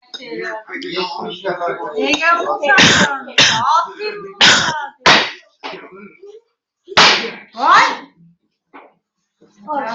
{"expert_labels": [{"quality": "poor", "cough_type": "unknown", "dyspnea": false, "wheezing": false, "stridor": false, "choking": false, "congestion": false, "nothing": true, "diagnosis": "upper respiratory tract infection", "severity": "unknown"}], "gender": "female", "respiratory_condition": false, "fever_muscle_pain": false, "status": "healthy"}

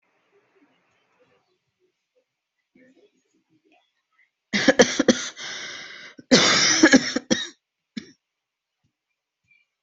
{"expert_labels": [{"quality": "ok", "cough_type": "dry", "dyspnea": false, "wheezing": false, "stridor": false, "choking": false, "congestion": false, "nothing": true, "diagnosis": "COVID-19", "severity": "mild"}, {"quality": "ok", "cough_type": "dry", "dyspnea": false, "wheezing": false, "stridor": false, "choking": false, "congestion": false, "nothing": true, "diagnosis": "lower respiratory tract infection", "severity": "mild"}, {"quality": "good", "cough_type": "dry", "dyspnea": false, "wheezing": false, "stridor": false, "choking": false, "congestion": false, "nothing": true, "diagnosis": "upper respiratory tract infection", "severity": "mild"}, {"quality": "good", "cough_type": "dry", "dyspnea": false, "wheezing": false, "stridor": false, "choking": false, "congestion": false, "nothing": true, "diagnosis": "upper respiratory tract infection", "severity": "mild"}], "age": 33, "gender": "female", "respiratory_condition": false, "fever_muscle_pain": false, "status": "COVID-19"}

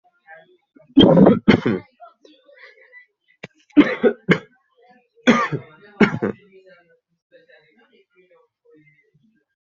{"expert_labels": [{"quality": "good", "cough_type": "wet", "dyspnea": false, "wheezing": false, "stridor": false, "choking": false, "congestion": false, "nothing": true, "diagnosis": "healthy cough", "severity": "pseudocough/healthy cough"}]}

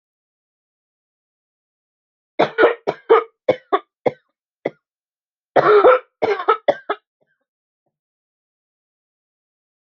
{"expert_labels": [{"quality": "good", "cough_type": "wet", "dyspnea": false, "wheezing": false, "stridor": false, "choking": false, "congestion": false, "nothing": true, "diagnosis": "lower respiratory tract infection", "severity": "severe"}], "age": 36, "gender": "female", "respiratory_condition": true, "fever_muscle_pain": true, "status": "symptomatic"}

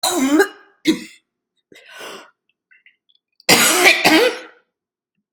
{"expert_labels": [{"quality": "good", "cough_type": "dry", "dyspnea": false, "wheezing": false, "stridor": false, "choking": false, "congestion": false, "nothing": false, "diagnosis": "lower respiratory tract infection", "severity": "mild"}], "age": 58, "gender": "female", "respiratory_condition": false, "fever_muscle_pain": false, "status": "symptomatic"}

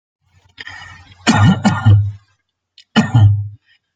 {"expert_labels": [{"quality": "ok", "cough_type": "unknown", "dyspnea": false, "wheezing": false, "stridor": false, "choking": false, "congestion": false, "nothing": true, "diagnosis": "lower respiratory tract infection", "severity": "mild"}, {"quality": "good", "cough_type": "dry", "dyspnea": false, "wheezing": false, "stridor": false, "choking": false, "congestion": false, "nothing": true, "diagnosis": "COVID-19", "severity": "unknown"}, {"quality": "good", "cough_type": "dry", "dyspnea": false, "wheezing": false, "stridor": false, "choking": false, "congestion": false, "nothing": true, "diagnosis": "healthy cough", "severity": "pseudocough/healthy cough"}, {"quality": "ok", "cough_type": "dry", "dyspnea": false, "wheezing": false, "stridor": false, "choking": false, "congestion": false, "nothing": true, "diagnosis": "healthy cough", "severity": "pseudocough/healthy cough"}], "age": 22, "gender": "male", "respiratory_condition": false, "fever_muscle_pain": false, "status": "healthy"}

